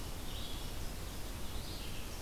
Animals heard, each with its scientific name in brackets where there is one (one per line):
Red-eyed Vireo (Vireo olivaceus)